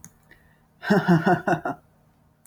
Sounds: Laughter